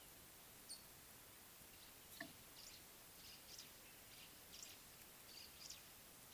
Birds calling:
White-browed Sparrow-Weaver (Plocepasser mahali)

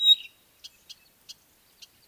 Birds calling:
Pygmy Batis (Batis perkeo)

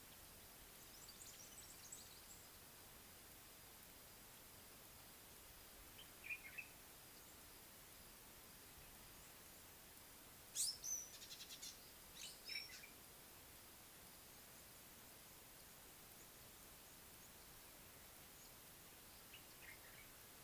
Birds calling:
African Gray Flycatcher (Bradornis microrhynchus), Common Bulbul (Pycnonotus barbatus)

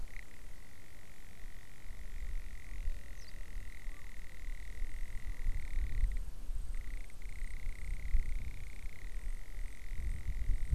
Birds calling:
Garganey (Spatula querquedula)

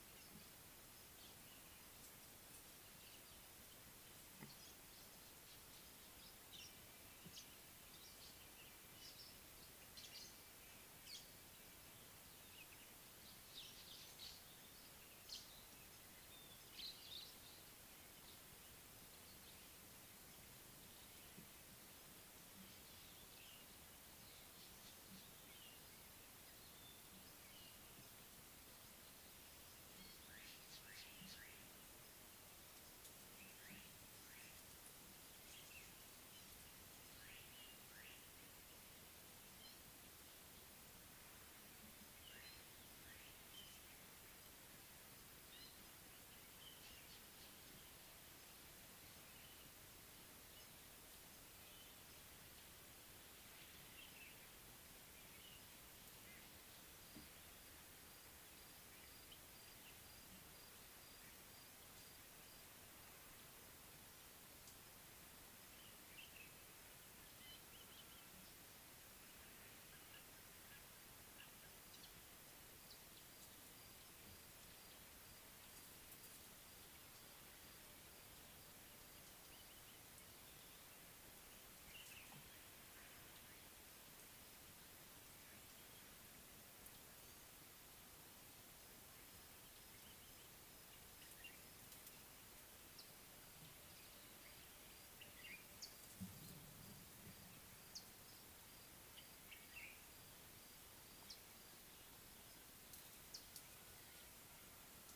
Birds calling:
Meyer's Parrot (Poicephalus meyeri), Mariqua Sunbird (Cinnyris mariquensis), Common Bulbul (Pycnonotus barbatus), Northern Puffback (Dryoscopus gambensis)

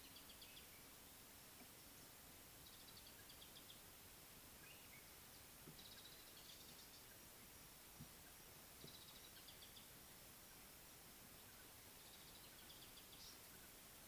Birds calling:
Mariqua Sunbird (Cinnyris mariquensis)

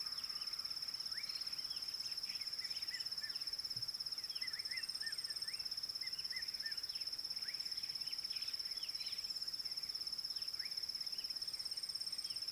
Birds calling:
Red-chested Cuckoo (Cuculus solitarius)

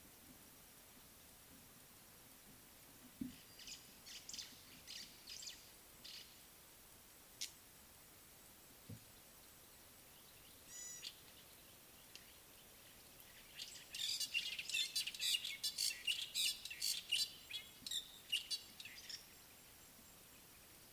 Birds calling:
Fork-tailed Drongo (Dicrurus adsimilis), Gray-backed Camaroptera (Camaroptera brevicaudata), White-browed Sparrow-Weaver (Plocepasser mahali)

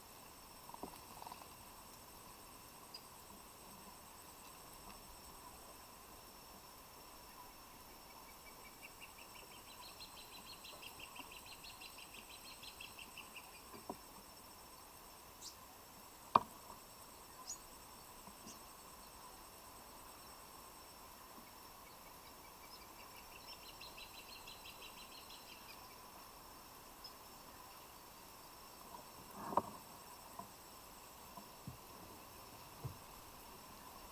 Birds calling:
Crowned Hornbill (Lophoceros alboterminatus)

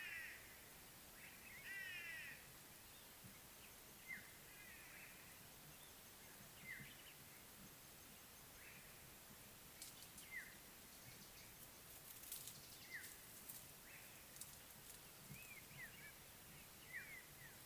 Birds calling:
African Black-headed Oriole (Oriolus larvatus), White-bellied Go-away-bird (Corythaixoides leucogaster)

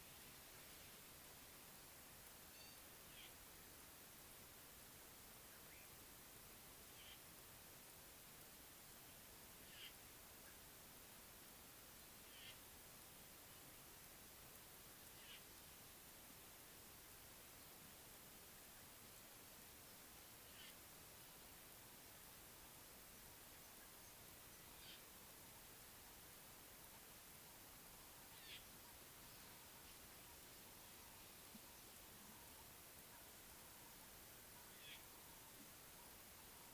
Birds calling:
Golden-breasted Starling (Lamprotornis regius)

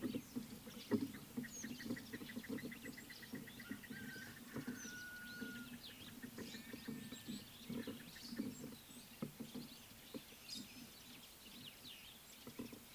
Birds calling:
White-browed Coucal (Centropus superciliosus)

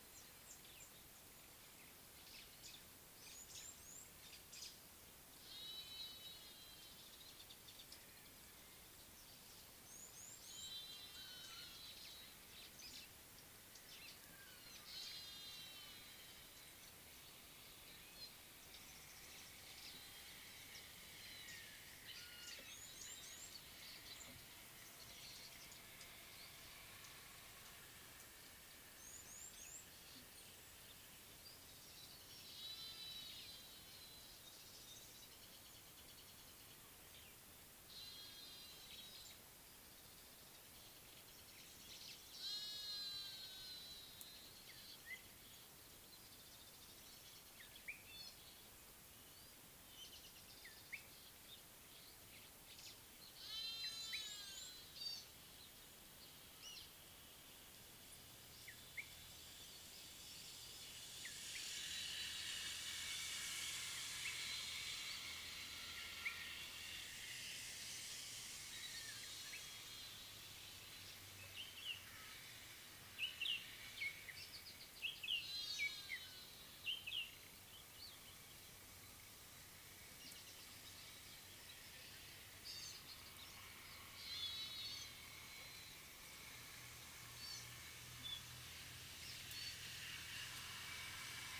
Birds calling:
Gray-backed Camaroptera (Camaroptera brevicaudata), Spotted Morning-Thrush (Cichladusa guttata), Speckled Mousebird (Colius striatus), Red-cheeked Cordonbleu (Uraeginthus bengalus)

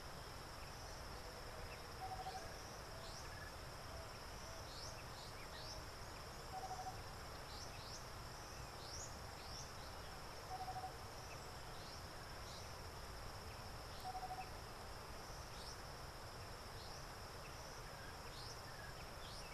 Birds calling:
Tropical Boubou (Laniarius major)

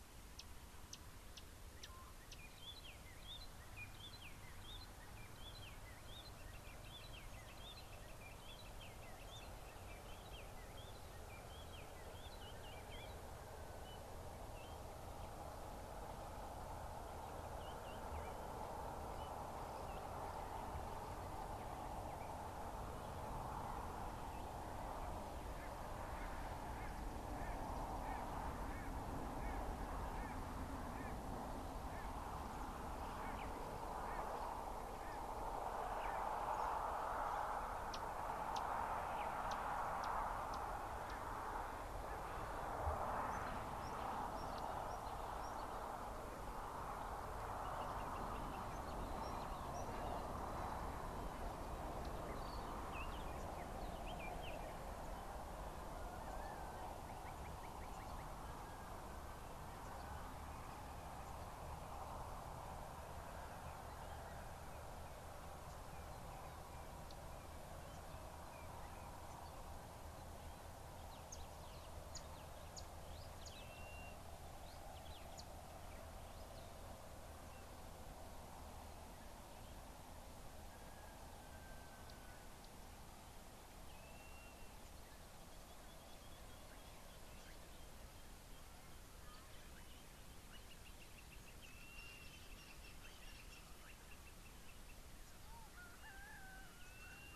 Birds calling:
Spotted Morning-Thrush (Cichladusa guttata), Blue-naped Mousebird (Urocolius macrourus), Red-backed Scrub-Robin (Cercotrichas leucophrys), Beautiful Sunbird (Cinnyris pulchellus)

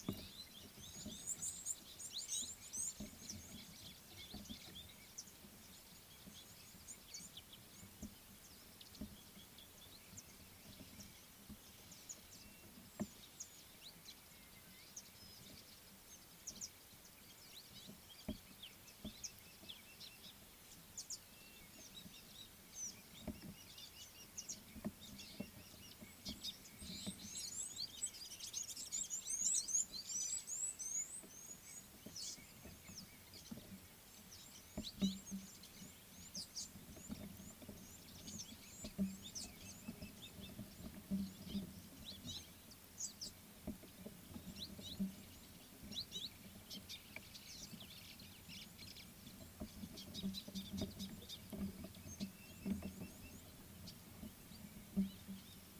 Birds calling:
Gabar Goshawk (Micronisus gabar), White-browed Sparrow-Weaver (Plocepasser mahali), Scarlet-chested Sunbird (Chalcomitra senegalensis), Red-cheeked Cordonbleu (Uraeginthus bengalus), Superb Starling (Lamprotornis superbus)

